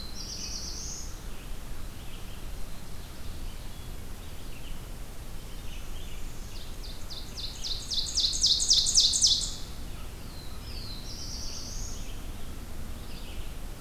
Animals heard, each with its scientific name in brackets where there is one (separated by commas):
Black-throated Blue Warbler (Setophaga caerulescens), Northern Parula (Setophaga americana), American Crow (Corvus brachyrhynchos), Red-eyed Vireo (Vireo olivaceus), Ovenbird (Seiurus aurocapilla)